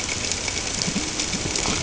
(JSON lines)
{"label": "ambient", "recorder": "HydroMoth"}